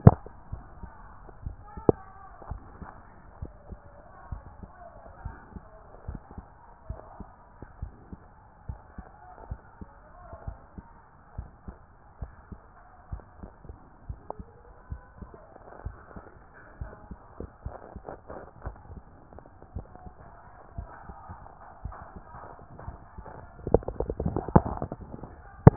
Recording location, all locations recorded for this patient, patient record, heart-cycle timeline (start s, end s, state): mitral valve (MV)
aortic valve (AV)+pulmonary valve (PV)+tricuspid valve (TV)+mitral valve (MV)
#Age: Child
#Sex: Male
#Height: 145.0 cm
#Weight: 51.8 kg
#Pregnancy status: False
#Murmur: Absent
#Murmur locations: nan
#Most audible location: nan
#Systolic murmur timing: nan
#Systolic murmur shape: nan
#Systolic murmur grading: nan
#Systolic murmur pitch: nan
#Systolic murmur quality: nan
#Diastolic murmur timing: nan
#Diastolic murmur shape: nan
#Diastolic murmur grading: nan
#Diastolic murmur pitch: nan
#Diastolic murmur quality: nan
#Outcome: Abnormal
#Campaign: 2014 screening campaign
0.00	2.48	unannotated
2.48	2.62	S1
2.62	2.80	systole
2.80	2.88	S2
2.88	3.40	diastole
3.40	3.52	S1
3.52	3.70	systole
3.70	3.80	S2
3.80	4.30	diastole
4.30	4.42	S1
4.42	4.62	systole
4.62	4.70	S2
4.70	5.24	diastole
5.24	5.36	S1
5.36	5.54	systole
5.54	5.62	S2
5.62	6.08	diastole
6.08	6.20	S1
6.20	6.36	systole
6.36	6.46	S2
6.46	6.88	diastole
6.88	7.00	S1
7.00	7.18	systole
7.18	7.28	S2
7.28	7.80	diastole
7.80	7.92	S1
7.92	8.12	systole
8.12	8.20	S2
8.20	8.68	diastole
8.68	8.80	S1
8.80	8.98	systole
8.98	9.06	S2
9.06	9.48	diastole
9.48	9.60	S1
9.60	9.80	systole
9.80	9.88	S2
9.88	10.46	diastole
10.46	10.58	S1
10.58	10.76	systole
10.76	10.84	S2
10.84	11.36	diastole
11.36	11.50	S1
11.50	11.66	systole
11.66	11.76	S2
11.76	12.20	diastole
12.20	12.32	S1
12.32	12.50	systole
12.50	12.60	S2
12.60	13.12	diastole
13.12	13.22	S1
13.22	13.40	systole
13.40	13.50	S2
13.50	14.08	diastole
14.08	14.20	S1
14.20	14.38	systole
14.38	14.46	S2
14.46	14.90	diastole
14.90	15.02	S1
15.02	15.20	systole
15.20	15.30	S2
15.30	15.84	diastole
15.84	15.96	S1
15.96	16.16	systole
16.16	16.24	S2
16.24	16.80	diastole
16.80	25.76	unannotated